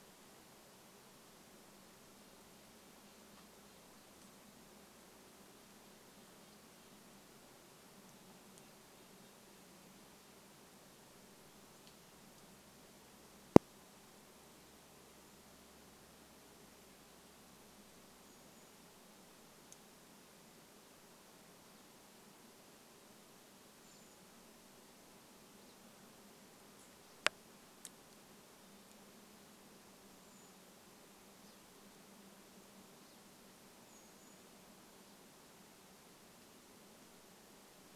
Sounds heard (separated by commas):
Red-breasted Nuthatch song, Brown Creeper call, Pine Siskin call